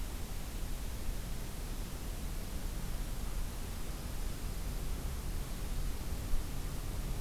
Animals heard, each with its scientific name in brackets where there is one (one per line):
Dark-eyed Junco (Junco hyemalis)